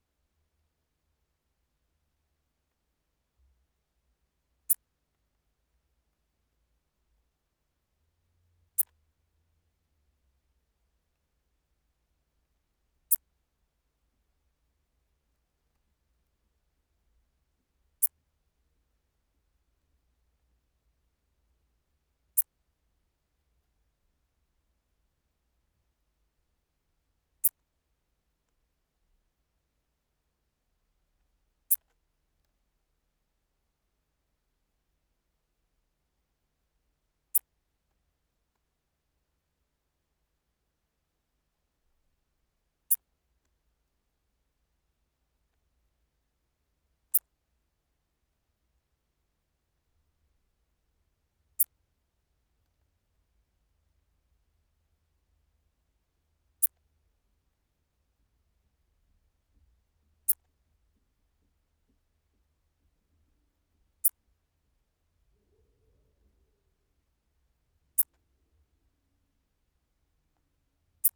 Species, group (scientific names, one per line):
Steropleurus brunnerii
Orthoptera